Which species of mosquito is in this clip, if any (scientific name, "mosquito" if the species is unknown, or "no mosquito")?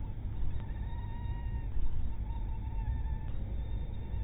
mosquito